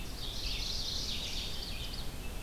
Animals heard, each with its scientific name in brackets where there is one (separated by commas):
Red-eyed Vireo (Vireo olivaceus), Ovenbird (Seiurus aurocapilla), Mourning Warbler (Geothlypis philadelphia)